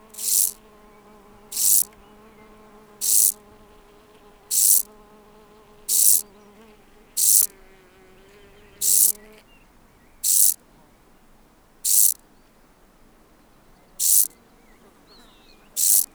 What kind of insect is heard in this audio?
orthopteran